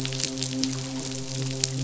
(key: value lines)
label: biophony, midshipman
recorder: SoundTrap 500